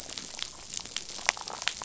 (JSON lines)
{"label": "biophony", "recorder": "SoundTrap 500"}